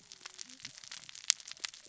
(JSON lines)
{"label": "biophony, cascading saw", "recorder": "SoundTrap 600 or HydroMoth"}